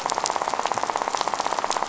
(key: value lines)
label: biophony, rattle
recorder: SoundTrap 500